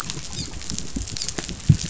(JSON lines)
{"label": "biophony, dolphin", "recorder": "SoundTrap 500"}